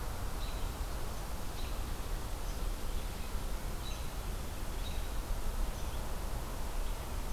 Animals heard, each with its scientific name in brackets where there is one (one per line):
American Robin (Turdus migratorius)